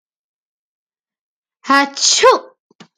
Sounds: Sneeze